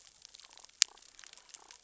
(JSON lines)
{"label": "biophony, damselfish", "recorder": "SoundTrap 600 or HydroMoth"}